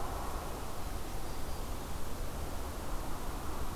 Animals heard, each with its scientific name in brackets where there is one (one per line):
Black-throated Green Warbler (Setophaga virens)